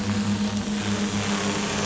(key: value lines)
label: anthrophony, boat engine
recorder: SoundTrap 500